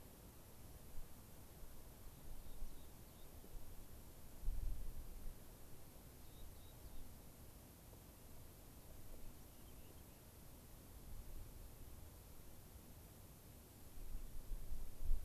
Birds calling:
Rock Wren (Salpinctes obsoletus)

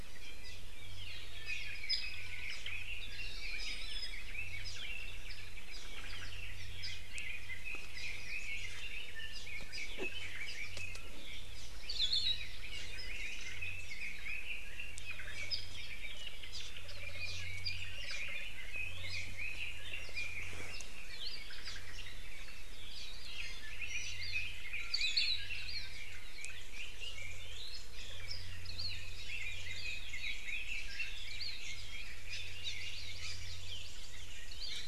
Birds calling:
Iiwi (Drepanis coccinea), Red-billed Leiothrix (Leiothrix lutea), Apapane (Himatione sanguinea), Hawaii Akepa (Loxops coccineus), Hawaii Amakihi (Chlorodrepanis virens), Omao (Myadestes obscurus)

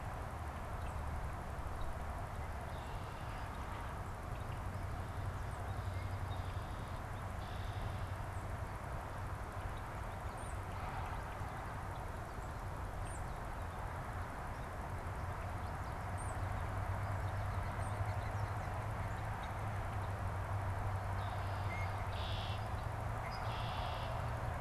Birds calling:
Tufted Titmouse (Baeolophus bicolor), unidentified bird, Red-winged Blackbird (Agelaius phoeniceus)

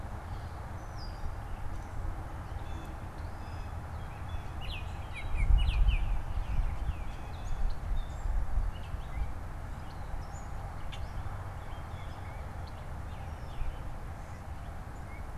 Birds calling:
Red-winged Blackbird (Agelaius phoeniceus), Baltimore Oriole (Icterus galbula), Gray Catbird (Dumetella carolinensis), Blue Jay (Cyanocitta cristata)

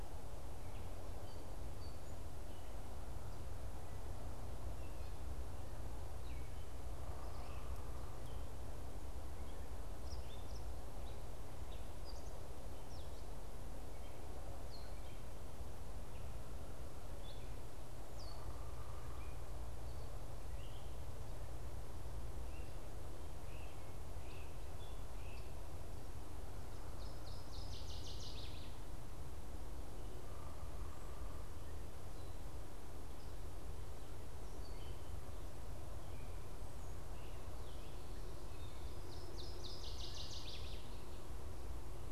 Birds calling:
Northern Waterthrush (Parkesia noveboracensis), Great Crested Flycatcher (Myiarchus crinitus), Gray Catbird (Dumetella carolinensis), unidentified bird

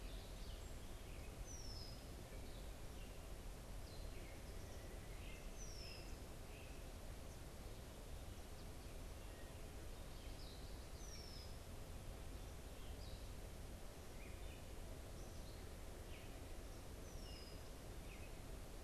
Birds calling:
unidentified bird, Red-winged Blackbird (Agelaius phoeniceus), Great Crested Flycatcher (Myiarchus crinitus)

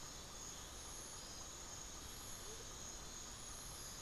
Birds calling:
Amazonian Motmot (Momotus momota)

